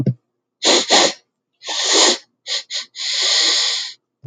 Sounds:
Sniff